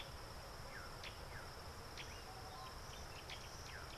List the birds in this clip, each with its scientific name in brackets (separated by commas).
Tropical Boubou (Laniarius major)